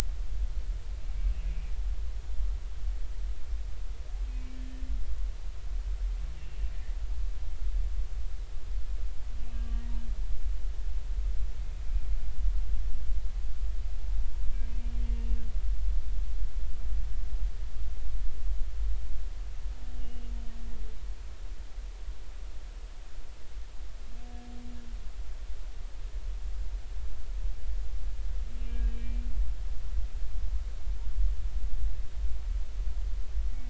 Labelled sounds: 1.5	1.7	humpback whale, 2.3 to 2.5 kHz
6.4	6.7	humpback whale, 2.6 to 2.8 kHz
9.5	9.8	humpback whale, 1.1 to 1.2 kHz
15.0	15.5	humpback whale, 2.7 to 2.8 kHz
20.0	20.3	humpback whale, 2.8 to 2.9 kHz
28.7	29.2	humpback whale, 1.6 to 2.4 kHz

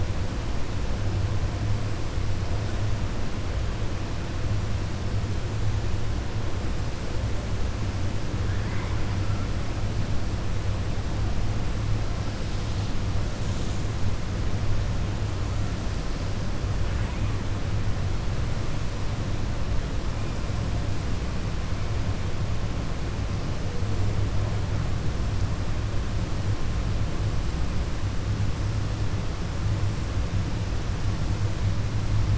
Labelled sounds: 8.4	9.0	killer whale, 0.96 to 2.3 kHz

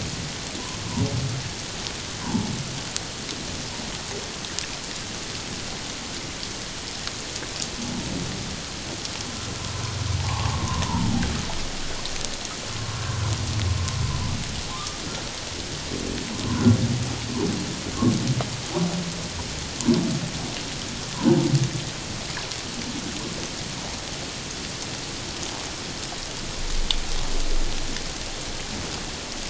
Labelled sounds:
2.2	2.5	humpback whale, 0.81 to 1.1 kHz
10.2	10.8	humpback whale, 0.78 to 1.2 kHz
14.7	15.0	humpback whale, 1.0 to 1.3 kHz

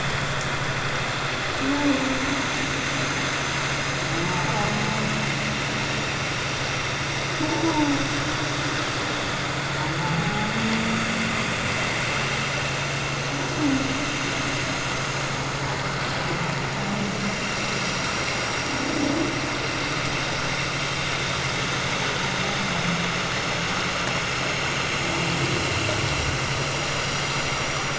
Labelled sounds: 7.7	7.9	humpback whale, 0.81 to 1.0 kHz
10.2	10.5	humpback whale, 0.81 to 0.88 kHz

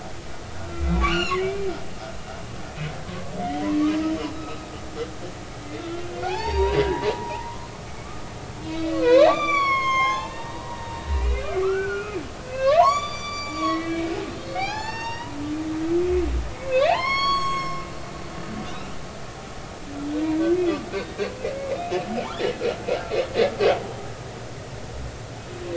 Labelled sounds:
0.7	1.7	humpback whale, 1.3 to 7.2 kHz
3.6	4.7	humpback whale, 0.96 to 5.4 kHz
6.2	7.7	humpback whale, 0.80 to 4.8 kHz
8.7	12.2	humpback whale, 0.80 to 7.2 kHz
12.5	15.4	humpback whale, 0.80 to 7.1 kHz
16.5	17.8	humpback whale, 0.80 to 7.8 kHz
18.6	18.9	humpback whale, 3.5 to 4.1 kHz
21.0	21.3	humpback whale, 3.6 to 3.9 kHz

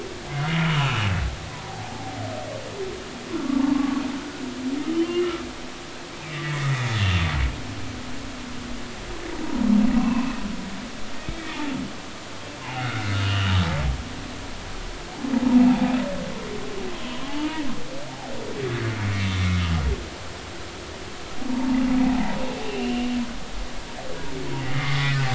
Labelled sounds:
0.6	2.1	humpback whale, 0.80 to 3.0 kHz
3.3	4.0	humpback whale, 1.0 to 1.5 kHz
4.8	5.4	humpback whale, 2.7 to 3.2 kHz
6.4	6.9	humpback whale, 1.7 to 2.3 kHz
9.4	10.4	humpback whale, 0.86 to 2.8 kHz
12.6	13.5	humpback whale, 0.80 to 3.0 kHz
17.1	17.6	humpback whale, 0.80 to 1.3 kHz
21.5	21.8	humpback whale, 0.86 to 0.99 kHz
22.6	23.1	humpback whale, 2.6 to 3.0 kHz
24.6	25.3	humpback whale, 1.1 to 2.6 kHz

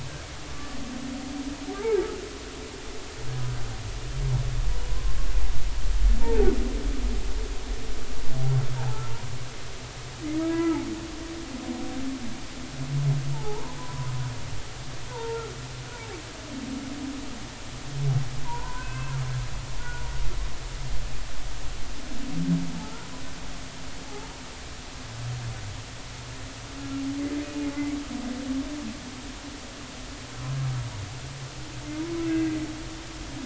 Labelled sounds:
0.5	0.8	humpback whale, 1.1 to 1.2 kHz
4.8	5.2	humpback whale, 0.96 to 1.1 kHz
6.2	6.5	humpback whale, 0.80 to 0.99 kHz
8.8	9.0	humpback whale, 0.80 to 0.99 kHz
10.5	10.8	humpback whale, 1.2 to 1.4 kHz
13.3	14.1	humpback whale, 0.80 to 1.1 kHz
15.1	15.4	humpback whale, 0.86 to 1.1 kHz
18.4	19.2	humpback whale, 0.86 to 2.7 kHz
19.8	20.0	humpback whale, 1.4 to 1.5 kHz
27.4	27.7	humpback whale, 2.4 to 2.5 kHz
32.1	33.4	humpback whale, 1.9 to 2.7 kHz

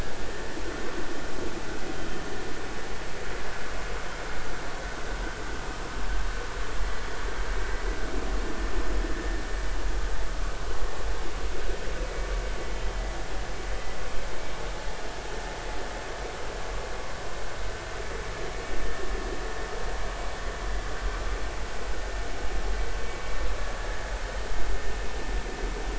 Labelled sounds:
23.8	24.1	vessel noise, 1.6 to 1.9 kHz

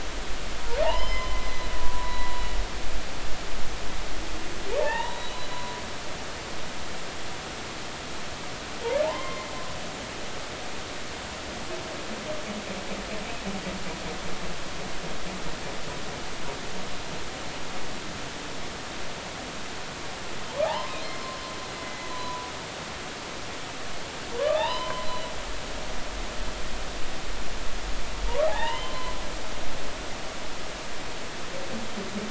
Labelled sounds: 0.8	2.3	humpback whale, 0.80 to 5.2 kHz
4.8	5.8	humpback whale, 0.83 to 4.0 kHz
9.0	9.5	humpback whale, 0.80 to 3.2 kHz
20.6	21.0	humpback whale, 0.80 to 1.1 kHz
21.8	22.5	humpback whale, 0.93 to 4.1 kHz
24.3	25.3	humpback whale, 0.80 to 5.1 kHz
28.3	29.1	humpback whale, 0.80 to 3.1 kHz

